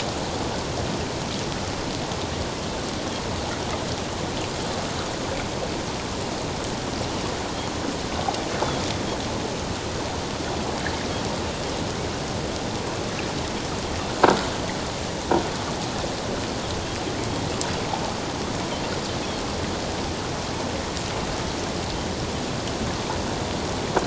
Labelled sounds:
19.2	19.4	Pacific white-sided dolphin, 3.1 to 3.5 kHz

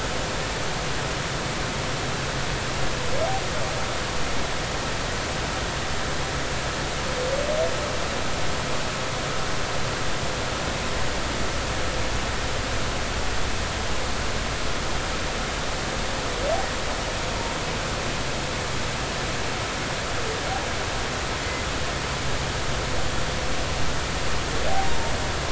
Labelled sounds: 24.9	25.1	humpback whale, 0.90 to 0.96 kHz

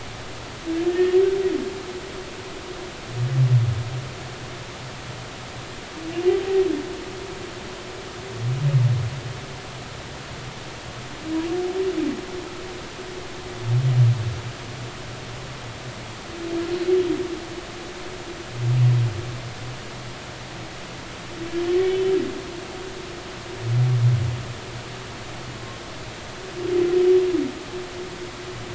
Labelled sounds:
0.9	1.2	humpback whale, 1.8 to 1.9 kHz

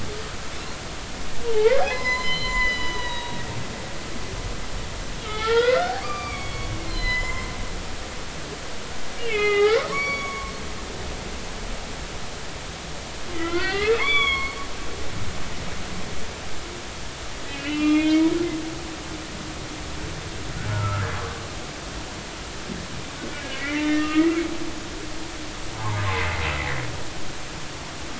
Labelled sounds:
1.4	3.4	humpback whale, 0.80 to 5.2 kHz
5.2	7.5	humpback whale, 0.80 to 7.3 kHz
9.2	10.5	humpback whale, 0.80 to 6.8 kHz
13.3	14.6	humpback whale, 0.96 to 6.9 kHz
17.5	18.3	humpback whale, 1.2 to 3.5 kHz
20.7	21.0	humpback whale, 1.2 to 1.5 kHz
23.6	24.3	humpback whale, 1.2 to 3.1 kHz
26.1	26.4	humpback whale, 2.0 to 2.2 kHz

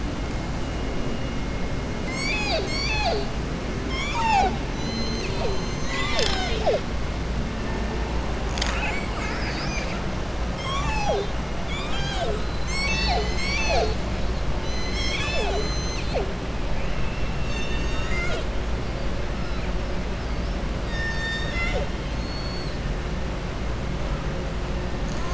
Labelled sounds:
3.8	4.6	killer whale, southern resident, 0.61 to 7.4 kHz
17.3	18.5	killer whale, southern resident, 0.65 to 7.8 kHz
22.0	22.8	killer whale, southern resident, 3.3 to 4.5 kHz

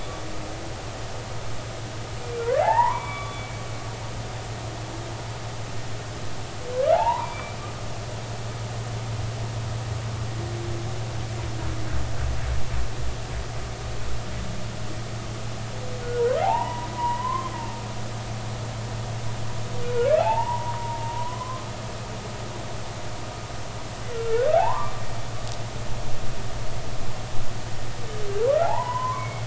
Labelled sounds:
2.6	3.6	humpback whale, 0.80 to 3.5 kHz
6.9	7.6	humpback whale, 0.80 to 4.7 kHz
16.4	17.5	humpback whale, 0.80 to 3.0 kHz
20.2	21.7	humpback whale, 0.80 to 1.1 kHz
24.1	24.9	humpback whale, 0.80 to 1.6 kHz
28.6	29.4	humpback whale, 0.80 to 3.1 kHz

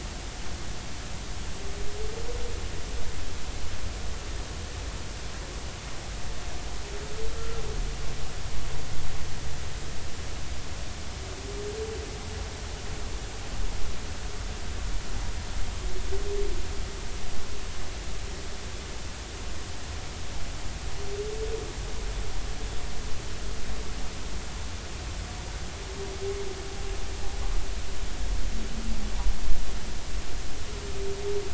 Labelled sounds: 7.3	7.6	humpback whale, 1.3 to 1.4 kHz

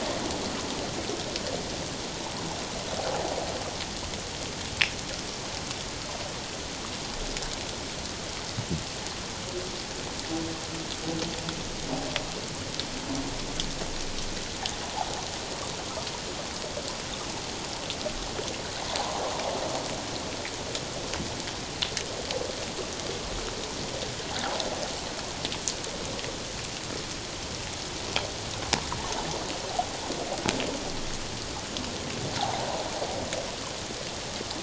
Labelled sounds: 32.4	32.8	water noise, 0.78 to 1.0 kHz

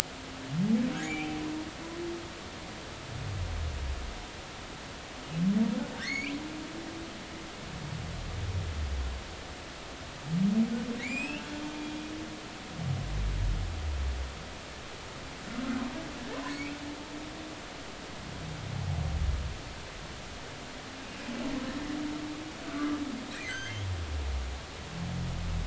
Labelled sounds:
1.0	1.4	humpback whale, 2.1 to 2.8 kHz
6.0	6.3	humpback whale, 1.8 to 4.7 kHz
11.1	11.4	humpback whale, 4.7 to 7.9 kHz
12.0	12.4	humpback whale, 2.0 to 3.0 kHz
16.5	16.8	humpback whale, 2.1 to 2.7 kHz
22.7	23.8	humpback whale, 1.1 to 6.4 kHz

